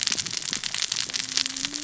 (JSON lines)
{"label": "biophony, cascading saw", "recorder": "SoundTrap 600 or HydroMoth"}